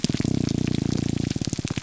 {"label": "biophony", "recorder": "SoundTrap 300"}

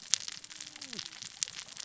{"label": "biophony, cascading saw", "recorder": "SoundTrap 600 or HydroMoth"}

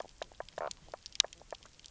{"label": "biophony, knock croak", "recorder": "SoundTrap 300"}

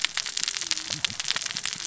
{"label": "biophony, cascading saw", "recorder": "SoundTrap 600 or HydroMoth"}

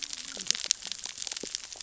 {"label": "biophony, cascading saw", "recorder": "SoundTrap 600 or HydroMoth"}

